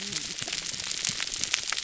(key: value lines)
label: biophony, whup
recorder: SoundTrap 300